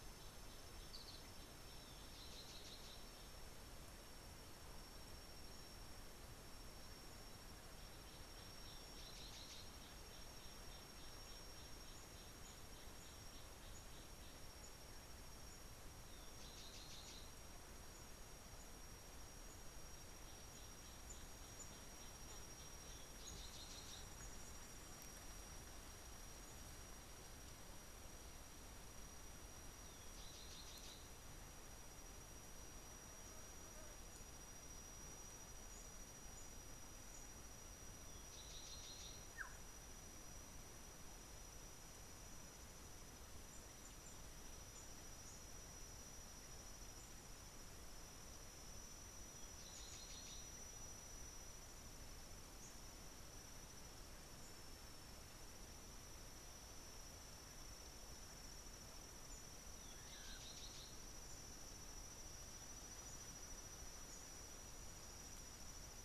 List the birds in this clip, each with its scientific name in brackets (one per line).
Black-tailed Oriole (Oriolus percivali)
Cinnamon Bracken-Warbler (Bradypterus cinnamomeus)